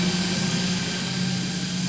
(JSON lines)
{"label": "anthrophony, boat engine", "recorder": "SoundTrap 500"}